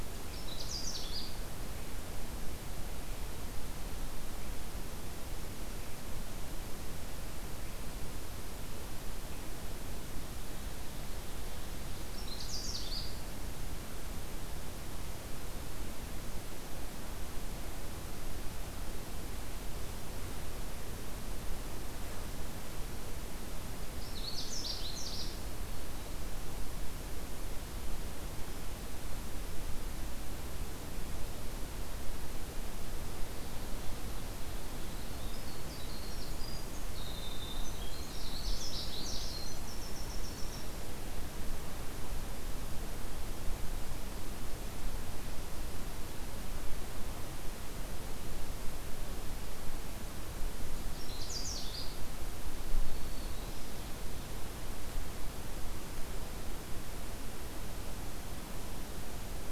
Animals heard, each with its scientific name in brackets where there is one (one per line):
Canada Warbler (Cardellina canadensis)
Winter Wren (Troglodytes hiemalis)
Black-capped Chickadee (Poecile atricapillus)